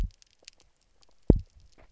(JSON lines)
{"label": "biophony, double pulse", "recorder": "SoundTrap 300"}